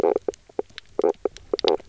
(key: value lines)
label: biophony, knock croak
recorder: SoundTrap 300